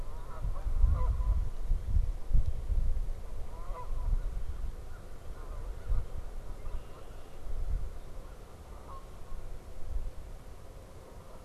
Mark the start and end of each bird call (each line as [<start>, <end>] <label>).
[0.00, 11.45] Canada Goose (Branta canadensis)
[4.03, 6.13] American Crow (Corvus brachyrhynchos)
[6.43, 7.13] Red-winged Blackbird (Agelaius phoeniceus)